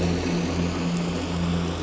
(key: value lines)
label: anthrophony, boat engine
recorder: SoundTrap 500